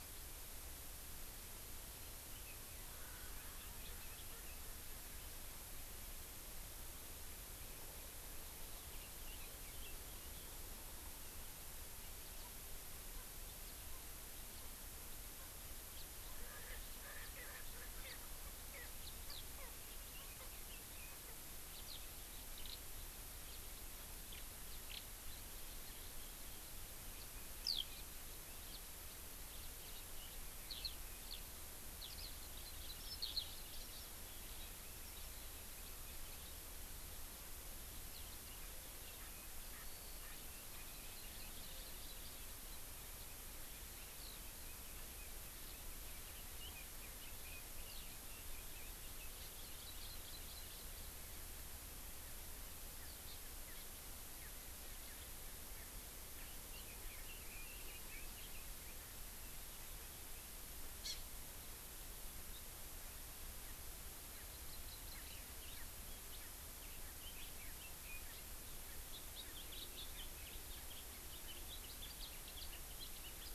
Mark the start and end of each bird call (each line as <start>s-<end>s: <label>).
16.3s-18.2s: Erckel's Francolin (Pternistis erckelii)
32.5s-34.1s: Hawaii Amakihi (Chlorodrepanis virens)
41.1s-42.4s: Hawaii Amakihi (Chlorodrepanis virens)
45.1s-48.9s: Red-billed Leiothrix (Leiothrix lutea)
49.2s-50.8s: Hawaii Amakihi (Chlorodrepanis virens)
53.2s-53.3s: Hawaii Amakihi (Chlorodrepanis virens)
56.7s-59.1s: Red-billed Leiothrix (Leiothrix lutea)
60.9s-61.1s: Hawaii Amakihi (Chlorodrepanis virens)
64.5s-65.4s: Hawaii Amakihi (Chlorodrepanis virens)